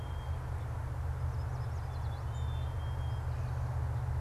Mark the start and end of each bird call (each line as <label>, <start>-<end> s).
Black-capped Chickadee (Poecile atricapillus), 0.0-4.2 s
Yellow Warbler (Setophaga petechia), 1.0-2.3 s